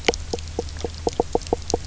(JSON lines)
{"label": "biophony, knock croak", "recorder": "SoundTrap 300"}